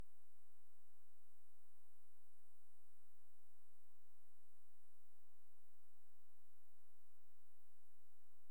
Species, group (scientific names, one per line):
Saga hellenica
Orthoptera